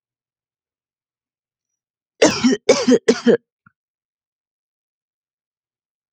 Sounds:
Cough